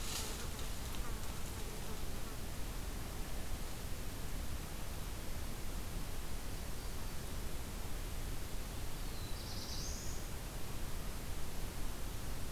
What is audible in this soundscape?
Black-throated Blue Warbler